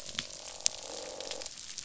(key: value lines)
label: biophony, croak
recorder: SoundTrap 500